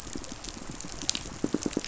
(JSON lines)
{"label": "biophony, pulse", "recorder": "SoundTrap 500"}